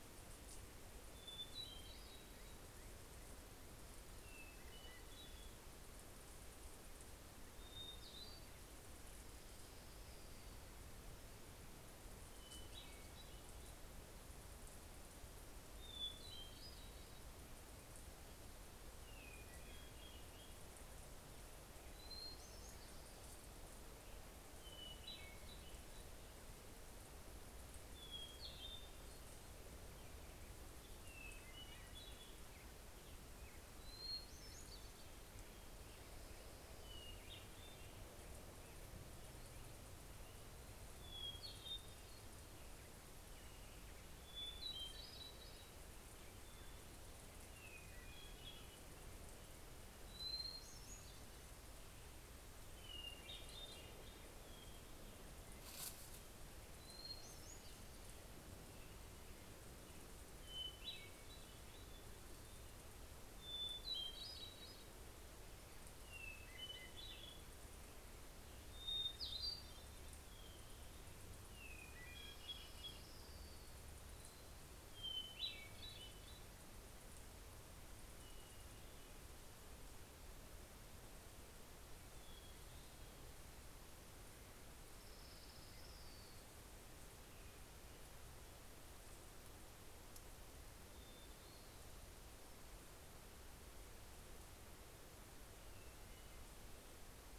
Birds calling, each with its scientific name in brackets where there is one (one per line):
Hermit Thrush (Catharus guttatus)
Orange-crowned Warbler (Leiothlypis celata)
Black-headed Grosbeak (Pheucticus melanocephalus)